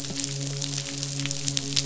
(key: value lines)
label: biophony, midshipman
recorder: SoundTrap 500